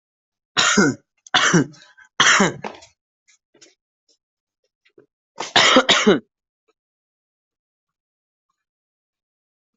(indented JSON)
{
  "expert_labels": [
    {
      "quality": "ok",
      "cough_type": "dry",
      "dyspnea": false,
      "wheezing": false,
      "stridor": false,
      "choking": false,
      "congestion": false,
      "nothing": true,
      "diagnosis": "COVID-19",
      "severity": "mild"
    }
  ]
}